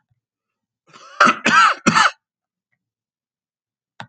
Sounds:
Cough